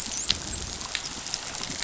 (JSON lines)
{"label": "biophony, dolphin", "recorder": "SoundTrap 500"}